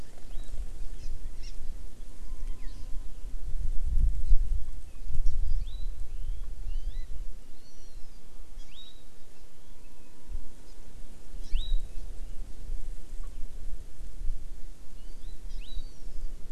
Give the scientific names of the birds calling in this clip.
Chlorodrepanis virens